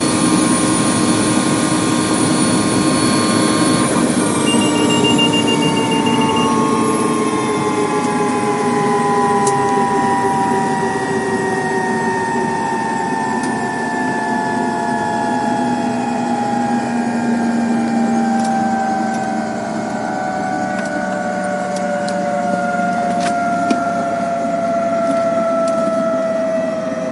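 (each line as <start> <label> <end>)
0.0 The helicopter rotor gradually slows down. 27.1
4.4 A helicopter emits a repeating high-pitched beep. 6.6
9.3 A sharp metallic clack. 9.8
13.3 A sharp metallic clack. 13.6
18.2 Repeating sharp metallic clacking. 19.3
20.5 Repeating sharp metallic clacking. 25.8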